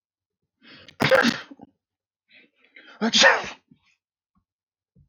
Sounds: Sneeze